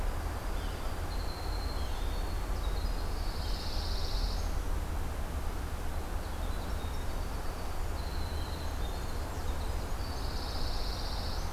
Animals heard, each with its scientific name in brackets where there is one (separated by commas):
Winter Wren (Troglodytes hiemalis), Pine Warbler (Setophaga pinus), Blackburnian Warbler (Setophaga fusca)